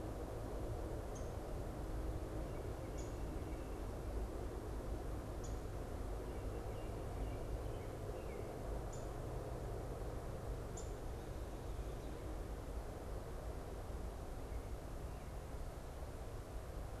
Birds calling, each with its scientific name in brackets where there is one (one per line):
Downy Woodpecker (Dryobates pubescens)
American Robin (Turdus migratorius)